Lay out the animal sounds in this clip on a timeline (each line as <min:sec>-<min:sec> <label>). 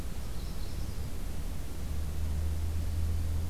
0:00.0-0:01.2 Magnolia Warbler (Setophaga magnolia)